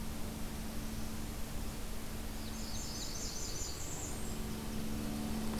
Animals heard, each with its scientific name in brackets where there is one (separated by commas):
Blackburnian Warbler (Setophaga fusca)